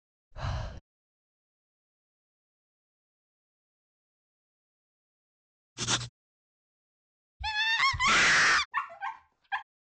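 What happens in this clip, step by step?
First, at 0.31 seconds, breathing is audible. Later, at 5.76 seconds, the sound of writing comes through. Afterwards, at 7.4 seconds, someone screams loudly. Finally, at 8.71 seconds, you can hear a dog.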